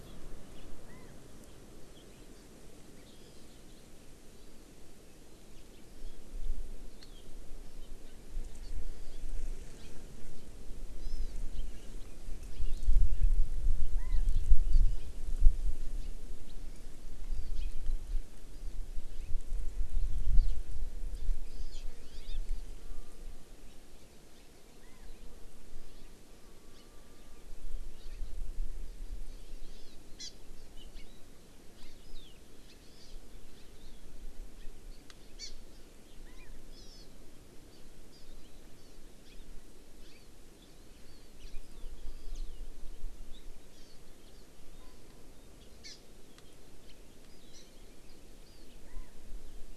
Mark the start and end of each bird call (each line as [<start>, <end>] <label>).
[5.80, 6.20] Hawaii Amakihi (Chlorodrepanis virens)
[8.60, 8.70] Hawaii Amakihi (Chlorodrepanis virens)
[9.80, 9.90] House Finch (Haemorhous mexicanus)
[11.00, 11.40] Hawaii Amakihi (Chlorodrepanis virens)
[12.50, 13.00] House Finch (Haemorhous mexicanus)
[14.70, 14.80] Hawaii Amakihi (Chlorodrepanis virens)
[17.50, 17.70] Hawaii Amakihi (Chlorodrepanis virens)
[22.00, 22.40] House Finch (Haemorhous mexicanus)
[29.60, 30.30] Hawaii Amakihi (Chlorodrepanis virens)
[31.70, 32.00] House Finch (Haemorhous mexicanus)
[32.80, 33.20] Hawaii Amakihi (Chlorodrepanis virens)
[35.40, 35.50] Hawaii Amakihi (Chlorodrepanis virens)
[36.70, 37.00] Hawaii Amakihi (Chlorodrepanis virens)
[38.10, 38.20] Hawaii Amakihi (Chlorodrepanis virens)
[39.20, 39.40] House Finch (Haemorhous mexicanus)
[40.00, 40.30] House Finch (Haemorhous mexicanus)
[43.70, 44.00] Hawaii Amakihi (Chlorodrepanis virens)
[45.80, 46.00] Hawaii Amakihi (Chlorodrepanis virens)
[47.50, 47.60] Hawaii Amakihi (Chlorodrepanis virens)